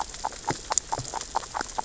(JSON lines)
{"label": "biophony, grazing", "recorder": "SoundTrap 600 or HydroMoth"}